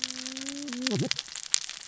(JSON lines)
{"label": "biophony, cascading saw", "recorder": "SoundTrap 600 or HydroMoth"}